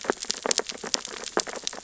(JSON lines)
{"label": "biophony, sea urchins (Echinidae)", "recorder": "SoundTrap 600 or HydroMoth"}